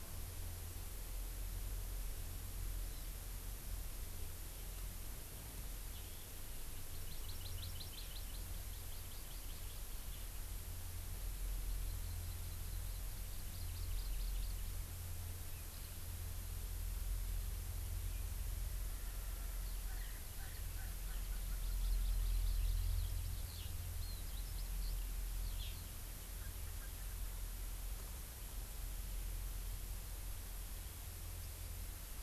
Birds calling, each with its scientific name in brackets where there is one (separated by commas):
Hawaii Amakihi (Chlorodrepanis virens), Eurasian Skylark (Alauda arvensis), Erckel's Francolin (Pternistis erckelii)